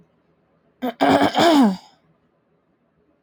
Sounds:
Throat clearing